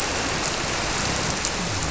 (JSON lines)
{"label": "biophony", "recorder": "SoundTrap 300"}